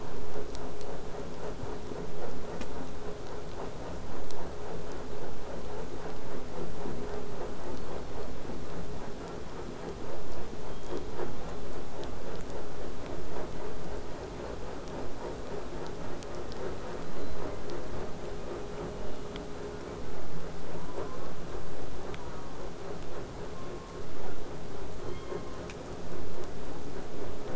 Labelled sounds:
1.4	4.6	killer whale, southern resident, 1.1 to 8.0 kHz
7.5	8.4	killer whale, southern resident, 3.2 to 4.9 kHz
10.6	11.4	killer whale, southern resident, 2.9 to 4.5 kHz
12.0	17.0	vessel noise, 0 to 8.0 kHz
17.0	17.5	killer whale, southern resident, J pod, 3.7 to 4.3 kHz
20.7	21.4	killer whale, southern resident, J pod, call S04, 0.12 to 1.9 kHz
22.0	22.6	killer whale, southern resident, J pod, call S04, 0.16 to 1.7 kHz
25.0	25.6	killer whale, southern resident, K pod, call S16, 0.83 to 4.4 kHz

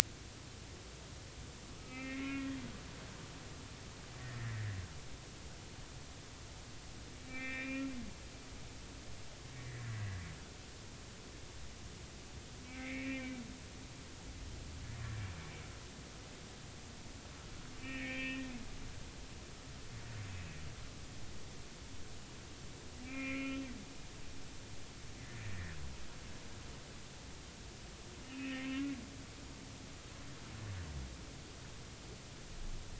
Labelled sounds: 1.8	2.6	humpback whale, 1.2 to 2.7 kHz
4.2	4.7	humpback whale, 1.7 to 2.1 kHz
7.2	7.9	humpback whale, 1.2 to 2.8 kHz
12.6	13.4	humpback whale, 1.8 to 2.7 kHz
17.8	18.5	humpback whale, 1.7 to 2.7 kHz
23.0	23.6	humpback whale, 1.3 to 3.0 kHz
25.2	25.8	humpback whale, 1.7 to 2.1 kHz
28.3	28.9	humpback whale, 1.0 to 2.9 kHz

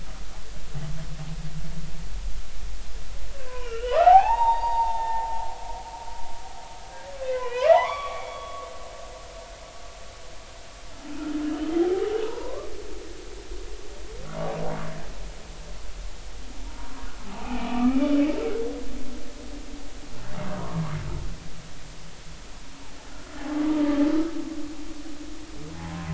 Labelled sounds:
3.4	5.3	humpback whale, 0.80 to 4.7 kHz
7.2	8.7	humpback whale, 0.80 to 5.7 kHz
11.4	12.7	humpback whale, 0.80 to 3.3 kHz
17.3	18.2	humpback whale, 0.80 to 2.6 kHz
20.6	21.0	humpback whale, 0.93 to 1.3 kHz
23.6	24.0	humpback whale, 1.1 to 1.3 kHz
25.7	26.1	humpback whale, 0.80 to 1.1 kHz

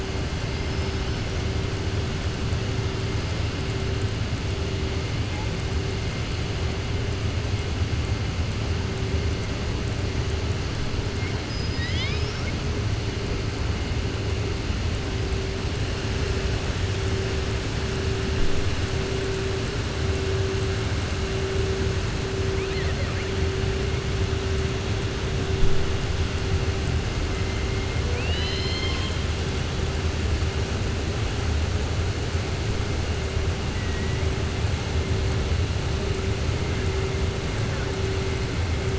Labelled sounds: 28.0	29.2	killer whale, southern resident, 1.0 to 5.3 kHz

